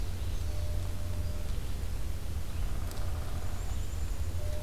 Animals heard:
Downy Woodpecker (Dryobates pubescens), Red-eyed Vireo (Vireo olivaceus), Ovenbird (Seiurus aurocapilla), Black-capped Chickadee (Poecile atricapillus)

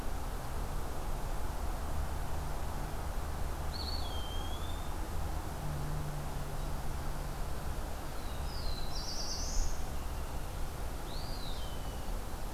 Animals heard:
Eastern Wood-Pewee (Contopus virens), Black-throated Blue Warbler (Setophaga caerulescens)

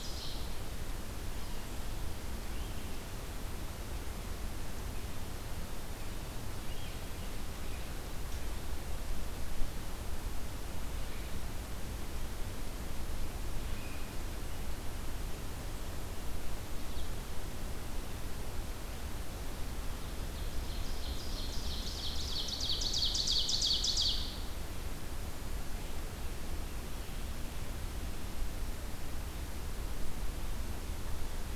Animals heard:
Ovenbird (Seiurus aurocapilla)

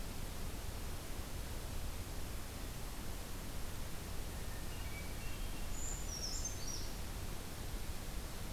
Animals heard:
Hermit Thrush (Catharus guttatus), Brown Creeper (Certhia americana)

